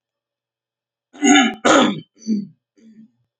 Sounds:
Throat clearing